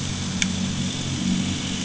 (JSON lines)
{"label": "anthrophony, boat engine", "recorder": "HydroMoth"}